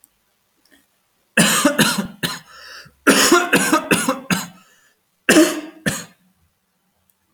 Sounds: Cough